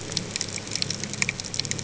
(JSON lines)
{"label": "ambient", "recorder": "HydroMoth"}